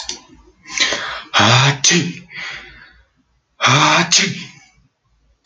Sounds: Sneeze